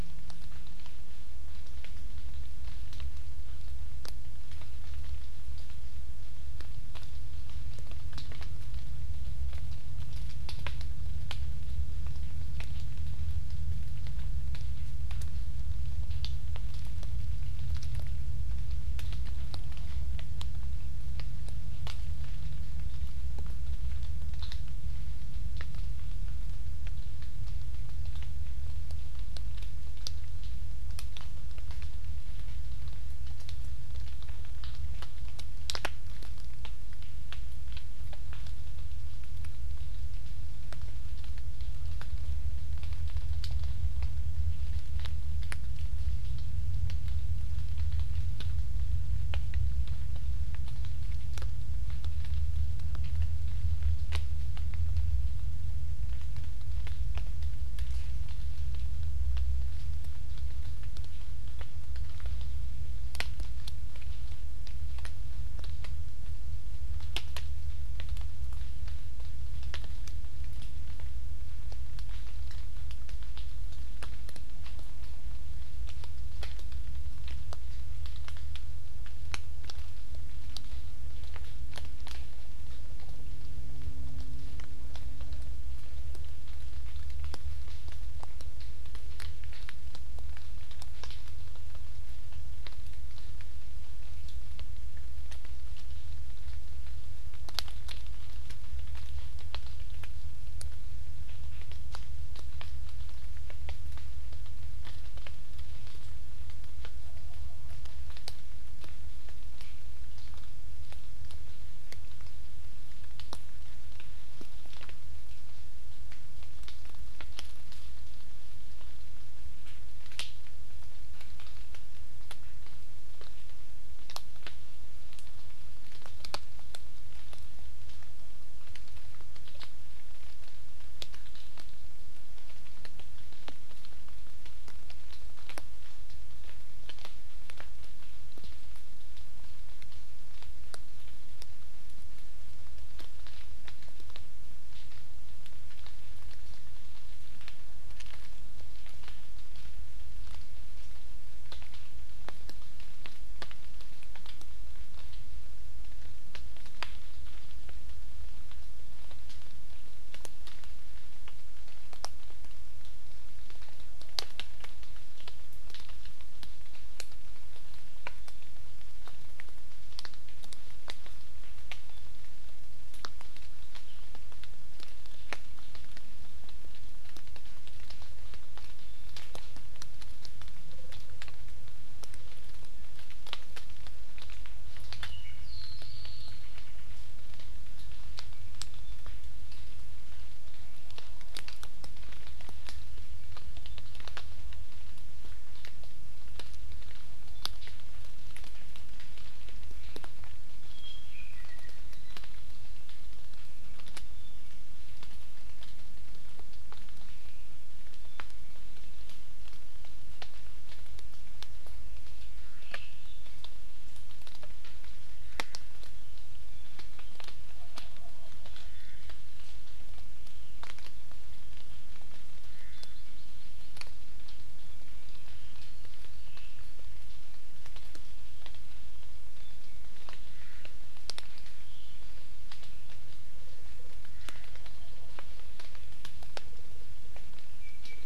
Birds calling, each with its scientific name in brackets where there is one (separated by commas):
Hawaii Amakihi (Chlorodrepanis virens), Apapane (Himatione sanguinea), Iiwi (Drepanis coccinea), Omao (Myadestes obscurus)